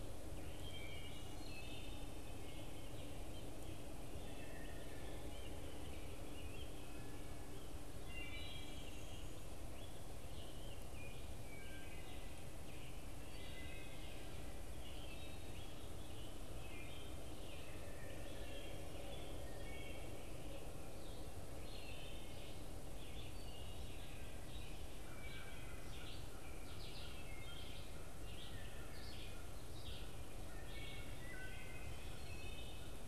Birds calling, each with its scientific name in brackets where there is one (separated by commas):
Red-eyed Vireo (Vireo olivaceus), Wood Thrush (Hylocichla mustelina), American Robin (Turdus migratorius)